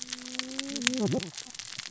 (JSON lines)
{"label": "biophony, cascading saw", "recorder": "SoundTrap 600 or HydroMoth"}